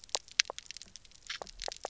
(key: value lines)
label: biophony, knock
recorder: SoundTrap 300